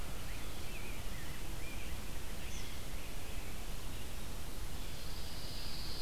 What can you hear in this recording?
American Crow, Blue Jay, Rose-breasted Grosbeak, Red-eyed Vireo, Eastern Kingbird, Pine Warbler